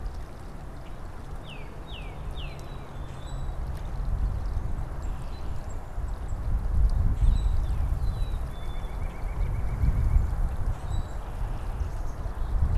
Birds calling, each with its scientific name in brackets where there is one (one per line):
White-breasted Nuthatch (Sitta carolinensis)
Common Grackle (Quiscalus quiscula)
Black-capped Chickadee (Poecile atricapillus)
Tufted Titmouse (Baeolophus bicolor)
unidentified bird